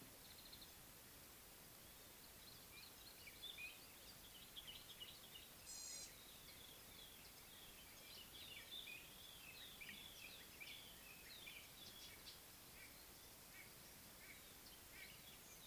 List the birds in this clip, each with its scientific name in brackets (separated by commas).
Pale White-eye (Zosterops flavilateralis), White-browed Robin-Chat (Cossypha heuglini), Gray-backed Camaroptera (Camaroptera brevicaudata), Common Bulbul (Pycnonotus barbatus), White-bellied Go-away-bird (Corythaixoides leucogaster), Northern Puffback (Dryoscopus gambensis), Red-faced Crombec (Sylvietta whytii)